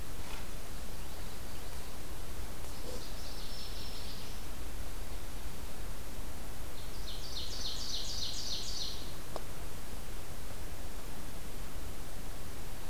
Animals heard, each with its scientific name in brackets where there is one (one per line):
Magnolia Warbler (Setophaga magnolia)
Black-throated Green Warbler (Setophaga virens)
Ovenbird (Seiurus aurocapilla)
Northern Waterthrush (Parkesia noveboracensis)